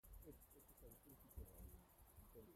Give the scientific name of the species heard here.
Tettigettalna argentata